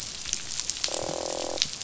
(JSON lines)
{"label": "biophony, croak", "recorder": "SoundTrap 500"}